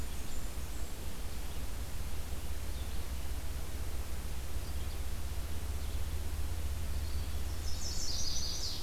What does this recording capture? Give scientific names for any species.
Setophaga fusca, Vireo olivaceus, Setophaga pensylvanica